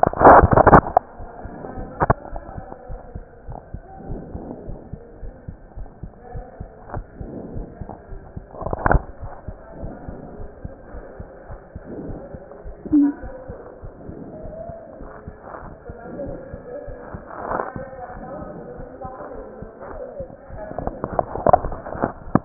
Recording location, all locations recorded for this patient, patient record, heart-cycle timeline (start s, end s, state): aortic valve (AV)
aortic valve (AV)+pulmonary valve (PV)+tricuspid valve (TV)+mitral valve (MV)
#Age: Child
#Sex: Male
#Height: 141.0 cm
#Weight: 35.7 kg
#Pregnancy status: False
#Murmur: Absent
#Murmur locations: nan
#Most audible location: nan
#Systolic murmur timing: nan
#Systolic murmur shape: nan
#Systolic murmur grading: nan
#Systolic murmur pitch: nan
#Systolic murmur quality: nan
#Diastolic murmur timing: nan
#Diastolic murmur shape: nan
#Diastolic murmur grading: nan
#Diastolic murmur pitch: nan
#Diastolic murmur quality: nan
#Outcome: Abnormal
#Campaign: 2015 screening campaign
0.00	2.86	unannotated
2.86	3.00	S1
3.00	3.12	systole
3.12	3.24	S2
3.24	3.46	diastole
3.46	3.58	S1
3.58	3.72	systole
3.72	3.78	S2
3.78	4.06	diastole
4.06	4.20	S1
4.20	4.32	systole
4.32	4.46	S2
4.46	4.66	diastole
4.66	4.75	S1
4.75	4.91	systole
4.91	4.97	S2
4.97	5.20	diastole
5.20	5.34	S1
5.34	5.46	systole
5.46	5.60	S2
5.60	5.76	diastole
5.76	5.85	S1
5.85	6.01	systole
6.01	6.09	S2
6.09	6.32	diastole
6.32	6.46	S1
6.46	6.58	systole
6.58	6.72	S2
6.72	6.94	diastole
6.94	7.03	S1
7.03	7.18	systole
7.18	7.26	S2
7.26	7.52	diastole
7.52	7.64	S1
7.64	7.78	systole
7.78	7.88	S2
7.88	8.09	diastole
8.09	8.19	S1
8.19	8.35	systole
8.35	8.40	S2
8.40	9.20	unannotated
9.20	9.29	S1
9.29	9.46	systole
9.46	9.54	S2
9.54	9.78	diastole
9.78	9.92	S1
9.92	10.02	systole
10.02	10.14	S2
10.14	10.38	diastole
10.38	10.46	S1
10.46	10.63	systole
10.63	10.68	S2
10.68	10.92	diastole
10.92	11.06	S1
11.06	11.18	systole
11.18	11.28	S2
11.28	11.48	diastole
11.48	11.56	S1
11.56	11.73	systole
11.73	11.80	S2
11.80	12.07	diastole
12.07	12.17	S1
12.17	12.31	systole
12.31	12.39	S2
12.39	22.45	unannotated